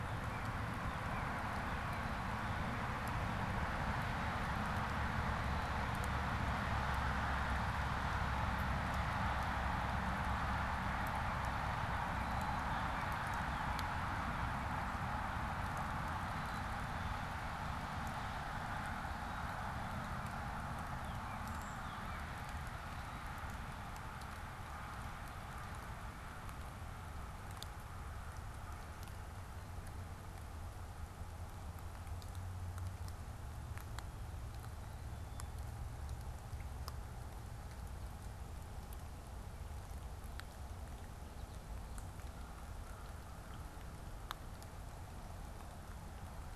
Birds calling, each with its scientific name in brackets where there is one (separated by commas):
Northern Cardinal (Cardinalis cardinalis), Black-capped Chickadee (Poecile atricapillus), Brown Creeper (Certhia americana)